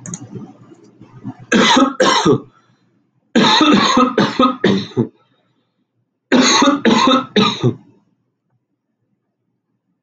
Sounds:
Cough